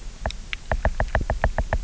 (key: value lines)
label: biophony, knock
recorder: SoundTrap 300